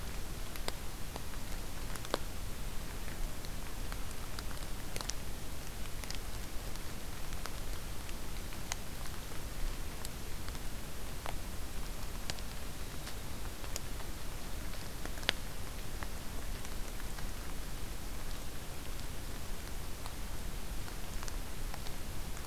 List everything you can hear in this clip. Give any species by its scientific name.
forest ambience